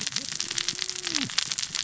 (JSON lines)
{"label": "biophony, cascading saw", "recorder": "SoundTrap 600 or HydroMoth"}